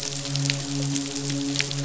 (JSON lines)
{"label": "biophony, midshipman", "recorder": "SoundTrap 500"}